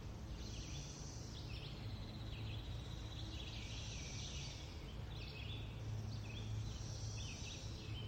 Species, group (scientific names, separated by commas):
Magicicada cassini, Cicadidae